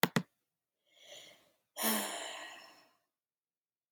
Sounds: Sigh